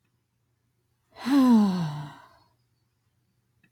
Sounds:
Sigh